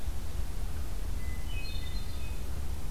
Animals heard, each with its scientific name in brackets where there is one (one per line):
Hermit Thrush (Catharus guttatus)